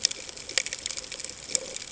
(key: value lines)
label: ambient
recorder: HydroMoth